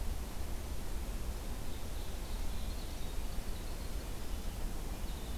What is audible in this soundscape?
Ovenbird, Winter Wren